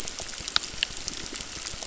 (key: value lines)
label: biophony, crackle
recorder: SoundTrap 600